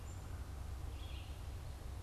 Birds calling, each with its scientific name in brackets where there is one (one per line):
Red-eyed Vireo (Vireo olivaceus)
Black-capped Chickadee (Poecile atricapillus)
American Crow (Corvus brachyrhynchos)